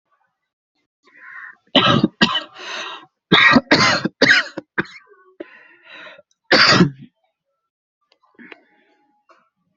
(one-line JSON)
{"expert_labels": [{"quality": "good", "cough_type": "wet", "dyspnea": false, "wheezing": false, "stridor": false, "choking": false, "congestion": true, "nothing": false, "diagnosis": "upper respiratory tract infection", "severity": "mild"}], "gender": "female", "respiratory_condition": false, "fever_muscle_pain": false, "status": "symptomatic"}